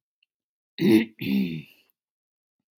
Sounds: Throat clearing